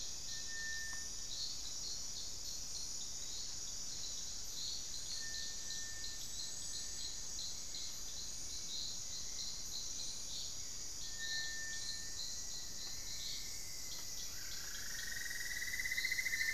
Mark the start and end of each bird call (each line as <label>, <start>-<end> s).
Rufous-fronted Antthrush (Formicarius rufifrons), 11.7-15.5 s
Cinnamon-throated Woodcreeper (Dendrexetastes rufigula), 14.2-16.5 s